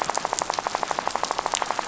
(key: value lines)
label: biophony, rattle
recorder: SoundTrap 500